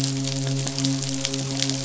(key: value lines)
label: biophony, midshipman
recorder: SoundTrap 500